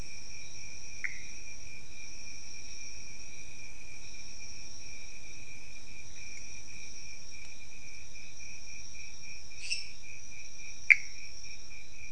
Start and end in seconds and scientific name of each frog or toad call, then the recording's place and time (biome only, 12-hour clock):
0.9	1.4	Pithecopus azureus
9.7	9.9	Dendropsophus minutus
10.9	11.3	Pithecopus azureus
Cerrado, 2:30am